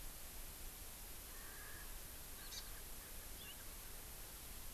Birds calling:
Hawaii Amakihi (Chlorodrepanis virens), Erckel's Francolin (Pternistis erckelii)

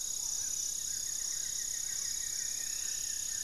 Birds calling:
Striped Woodcreeper (Xiphorhynchus obsoletus), Black-tailed Trogon (Trogon melanurus), Buff-throated Woodcreeper (Xiphorhynchus guttatus), Amazonian Trogon (Trogon ramonianus)

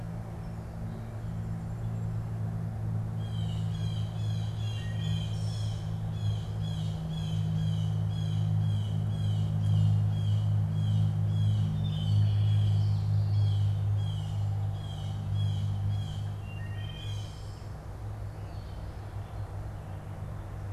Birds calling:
Wood Thrush (Hylocichla mustelina), Blue Jay (Cyanocitta cristata)

